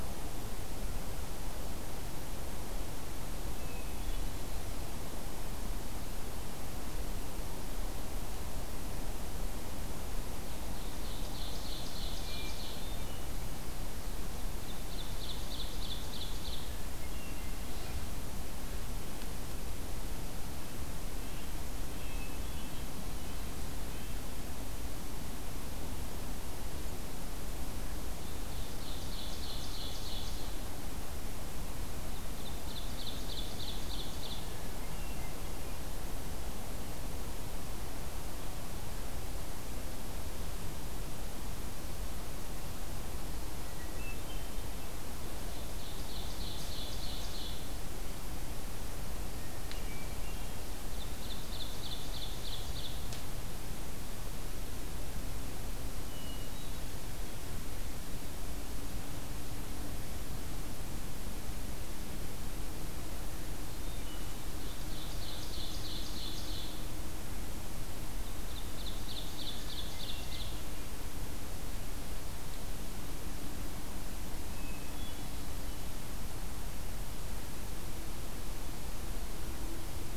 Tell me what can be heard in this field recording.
Hermit Thrush, Ovenbird, Red-breasted Nuthatch